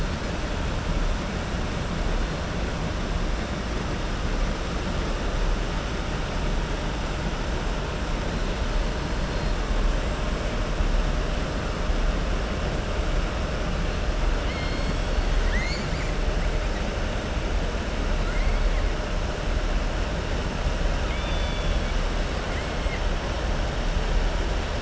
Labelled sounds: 14.4	15.2	killer whale, southern resident, 1.5 to 5.3 kHz
21.0	21.9	killer whale, southern resident, 1.3 to 3.7 kHz

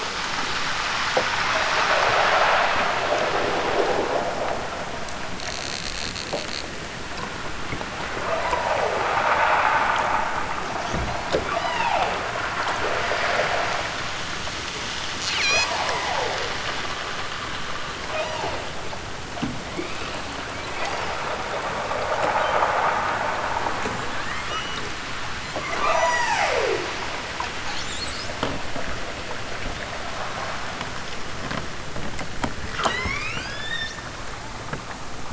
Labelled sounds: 11.4	12.3	killer whale, southern Alaska resident, 0.23 to 6.3 kHz
15.2	16.2	killer whale, southern Alaska resident, 1.2 to 8.0 kHz
18.0	18.7	killer whale, southern Alaska resident, 0.37 to 6.6 kHz
19.7	21.3	killer whale, southern Alaska resident, 0.60 to 6.6 kHz
24.2	24.9	killer whale, southern Alaska resident, 1.6 to 6.2 kHz
25.4	27.0	killer whale, southern Alaska resident, 0.32 to 8.0 kHz
32.7	34.0	killer whale, southern Alaska resident, 0.41 to 8.0 kHz

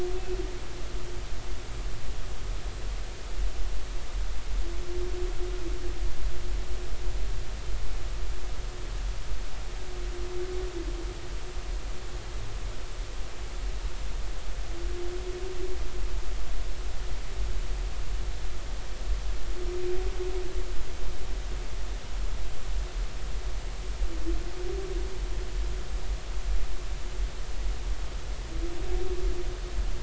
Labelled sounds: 0.1	0.4	humpback whale, 2.5 to 2.7 kHz

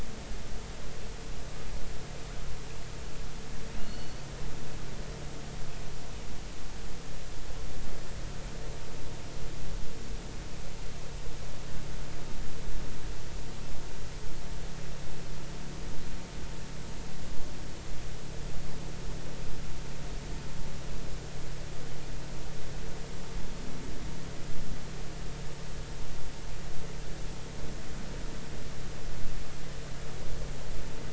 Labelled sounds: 3.8	4.3	killer whale, offshore, 2.8 to 4.5 kHz

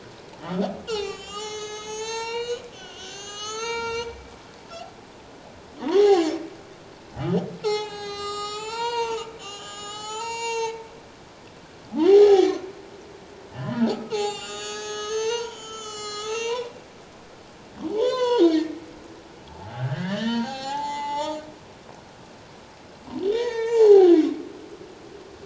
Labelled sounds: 0.5	4.1	humpback whale, 0.78 to 8.0 kHz
5.9	6.3	humpback whale, 0.78 to 5.6 kHz
7.6	11.3	humpback whale, 0.78 to 8.0 kHz
12.1	12.6	humpback whale, 0.78 to 0.84 kHz
13.5	16.8	humpback whale, 0.78 to 7.9 kHz
17.9	18.8	humpback whale, 0.78 to 7.5 kHz
19.5	21.5	humpback whale, 0.78 to 7.4 kHz
23.3	24.1	humpback whale, 0.78 to 6.9 kHz

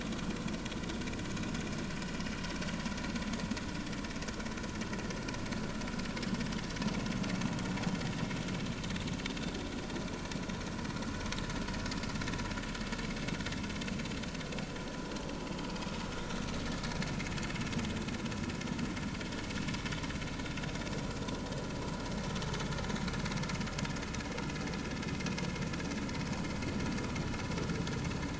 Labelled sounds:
15.6	15.9	vessel noise, 2.4 to 2.6 kHz

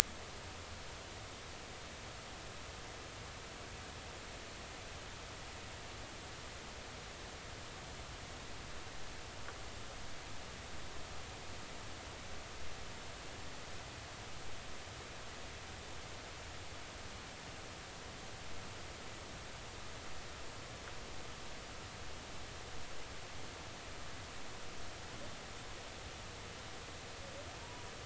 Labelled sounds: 27.6	27.9	humpback whale, 0.90 to 1.0 kHz

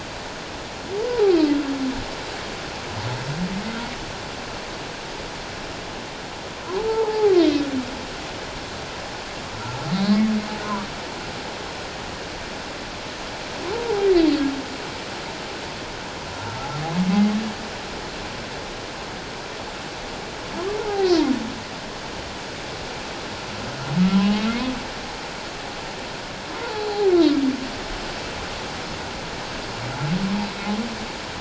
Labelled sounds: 6.7	7.3	humpback whale, 0.78 to 1.1 kHz
9.9	10.2	humpback whale, 3.8 to 4.5 kHz
13.7	14.1	humpback whale, 0.78 to 0.97 kHz
20.8	21.1	humpback whale, 0.78 to 1.0 kHz
26.6	26.9	humpback whale, 0.81 to 1.0 kHz

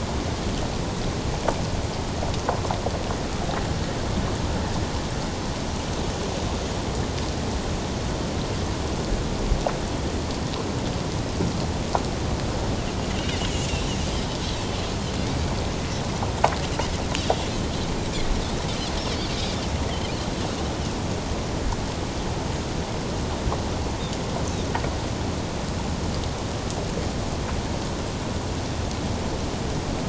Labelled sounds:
13.1	13.5	Pacific white-sided dolphin, 2.6 to 3.0 kHz

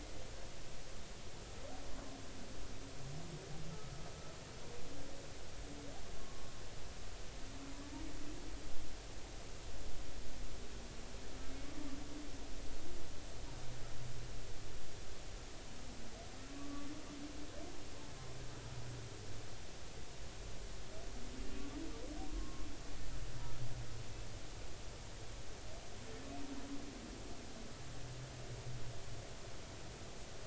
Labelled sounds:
6.2	6.5	humpback whale, 1.0 to 1.2 kHz
16.5	16.9	humpback whale, 1.1 to 1.2 kHz
22.3	22.7	humpback whale, 1.0 to 1.1 kHz

